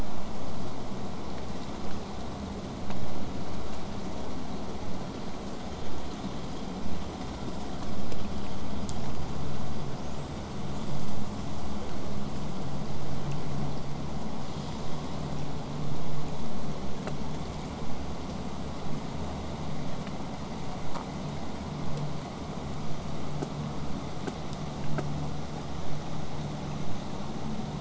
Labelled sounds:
22.8	27.7	vessel noise, 0 to 8.0 kHz

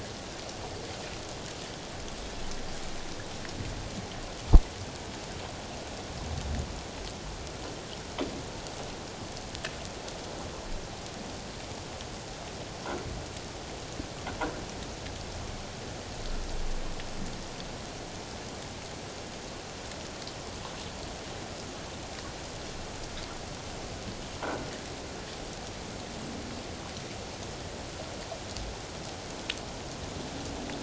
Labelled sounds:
24.4	24.7	croaking sound likely from a nearby submerged object, 1.3 to 1.6 kHz

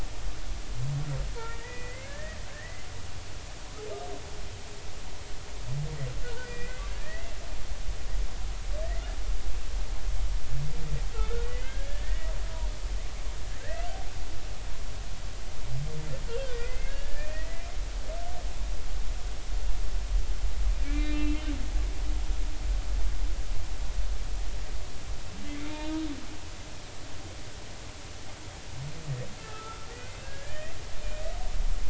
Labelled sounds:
1.4	2.9	humpback whale, 1.4 to 2.5 kHz
6.2	7.3	humpback whale, 1.4 to 4.9 kHz
8.8	9.1	humpback whale, 1.7 to 2.1 kHz
11.1	12.3	humpback whale, 1.2 to 2.2 kHz
13.6	13.9	humpback whale, 1.5 to 2.0 kHz
16.5	17.7	humpback whale, 1.6 to 2.7 kHz
20.8	21.4	humpback whale, 1.8 to 2.8 kHz
25.6	26.0	humpback whale, 3.6 to 3.8 kHz
29.4	30.8	humpback whale, 1.2 to 2.1 kHz

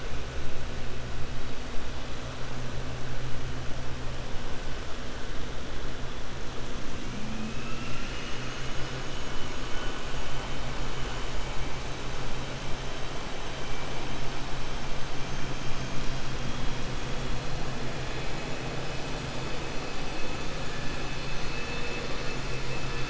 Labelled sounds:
7.5	8.9	vessel noise, 1.4 to 3.0 kHz

